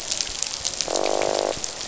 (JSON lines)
{"label": "biophony, croak", "recorder": "SoundTrap 500"}